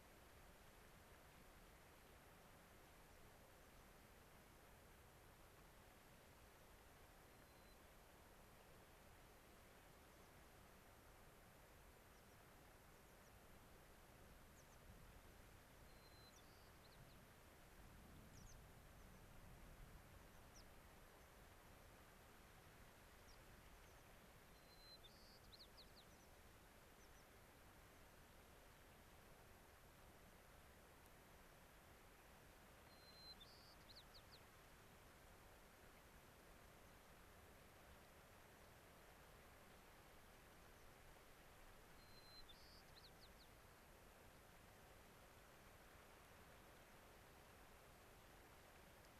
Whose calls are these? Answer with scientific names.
Zonotrichia leucophrys, Anthus rubescens